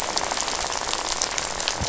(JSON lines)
{"label": "biophony, rattle", "recorder": "SoundTrap 500"}